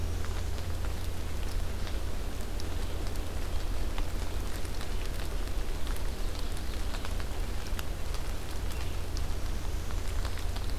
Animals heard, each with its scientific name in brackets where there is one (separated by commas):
Red-eyed Vireo (Vireo olivaceus)